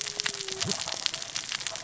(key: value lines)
label: biophony, cascading saw
recorder: SoundTrap 600 or HydroMoth